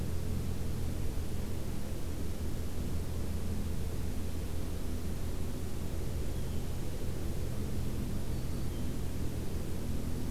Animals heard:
Black-throated Green Warbler (Setophaga virens)
Blue Jay (Cyanocitta cristata)

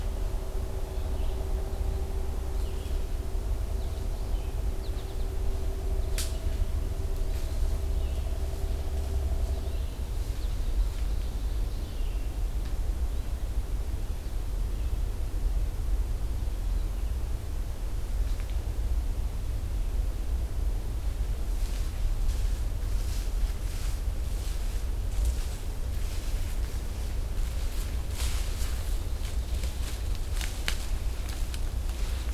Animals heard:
Ovenbird (Seiurus aurocapilla)
Red-eyed Vireo (Vireo olivaceus)
American Goldfinch (Spinus tristis)

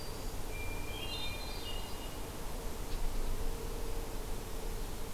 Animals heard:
Hermit Thrush (Catharus guttatus)

